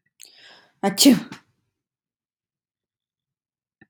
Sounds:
Sneeze